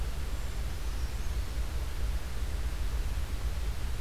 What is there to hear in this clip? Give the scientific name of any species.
Certhia americana